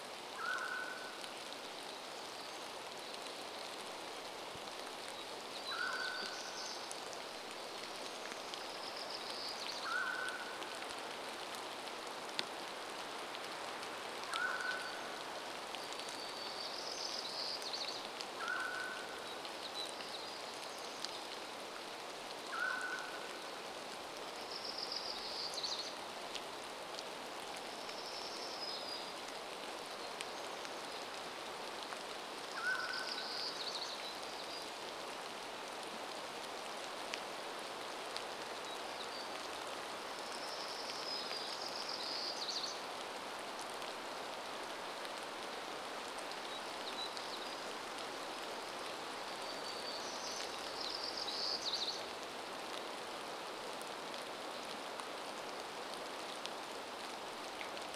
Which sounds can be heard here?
Mountain Quail call, rain, warbler song